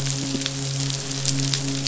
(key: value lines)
label: biophony, midshipman
recorder: SoundTrap 500